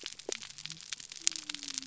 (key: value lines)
label: biophony
recorder: SoundTrap 300